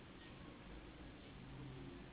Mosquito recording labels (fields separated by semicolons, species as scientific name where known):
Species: Anopheles gambiae s.s.; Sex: female; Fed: unfed; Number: one; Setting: insect culture